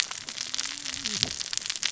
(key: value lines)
label: biophony, cascading saw
recorder: SoundTrap 600 or HydroMoth